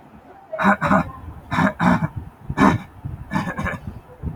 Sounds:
Cough